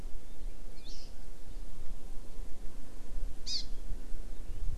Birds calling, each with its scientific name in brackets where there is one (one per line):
Hawaii Amakihi (Chlorodrepanis virens)